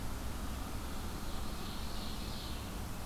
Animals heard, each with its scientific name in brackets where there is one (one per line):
Ovenbird (Seiurus aurocapilla)